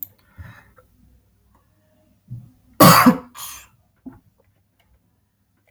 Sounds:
Sneeze